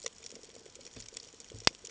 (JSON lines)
{"label": "ambient", "recorder": "HydroMoth"}